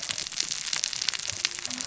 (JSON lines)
{"label": "biophony, cascading saw", "recorder": "SoundTrap 600 or HydroMoth"}